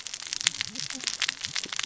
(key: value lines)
label: biophony, cascading saw
recorder: SoundTrap 600 or HydroMoth